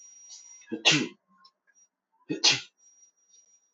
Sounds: Sneeze